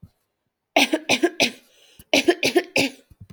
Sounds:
Cough